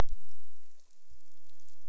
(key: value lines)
label: biophony
recorder: SoundTrap 300